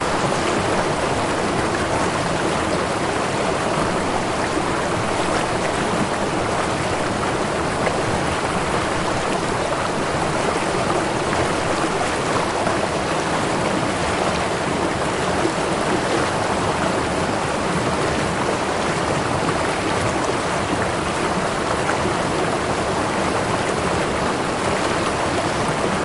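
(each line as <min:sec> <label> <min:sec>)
0:00.0 Soft bubbling of a gurgling stream. 0:26.0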